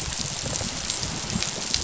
{"label": "biophony, rattle response", "recorder": "SoundTrap 500"}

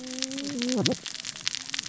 {"label": "biophony, cascading saw", "recorder": "SoundTrap 600 or HydroMoth"}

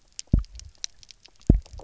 {"label": "biophony, double pulse", "recorder": "SoundTrap 300"}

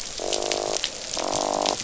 {"label": "biophony, croak", "recorder": "SoundTrap 500"}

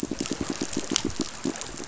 {"label": "biophony, pulse", "recorder": "SoundTrap 500"}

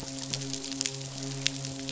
{"label": "biophony, midshipman", "recorder": "SoundTrap 500"}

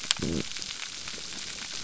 {"label": "biophony", "recorder": "SoundTrap 300"}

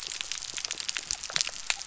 {"label": "biophony", "recorder": "SoundTrap 300"}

